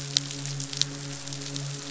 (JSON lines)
{"label": "biophony, midshipman", "recorder": "SoundTrap 500"}